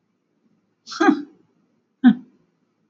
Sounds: Sniff